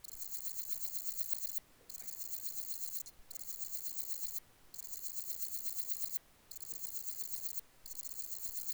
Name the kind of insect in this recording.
orthopteran